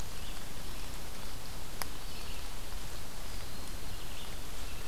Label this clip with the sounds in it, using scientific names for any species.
Vireo olivaceus, Setophaga virens